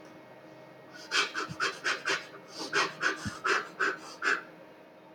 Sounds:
Sniff